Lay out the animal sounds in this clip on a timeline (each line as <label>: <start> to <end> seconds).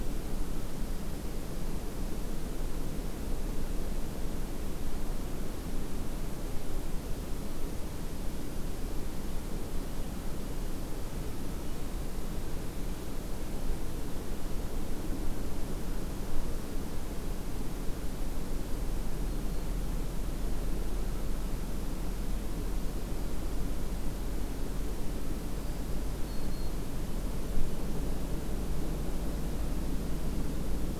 Black-throated Green Warbler (Setophaga virens): 25.5 to 26.8 seconds